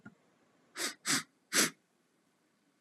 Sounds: Sniff